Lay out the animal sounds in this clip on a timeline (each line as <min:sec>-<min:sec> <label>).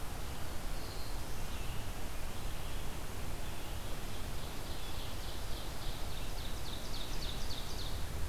0:00.0-0:06.6 Red-eyed Vireo (Vireo olivaceus)
0:00.1-0:01.6 Black-throated Blue Warbler (Setophaga caerulescens)
0:03.5-0:08.1 Ovenbird (Seiurus aurocapilla)